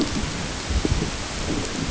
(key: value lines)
label: ambient
recorder: HydroMoth